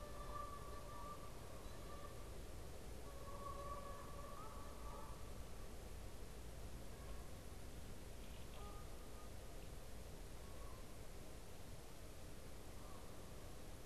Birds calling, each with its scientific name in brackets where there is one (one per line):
Canada Goose (Branta canadensis)